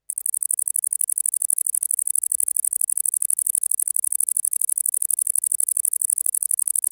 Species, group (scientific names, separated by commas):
Tettigonia viridissima, Orthoptera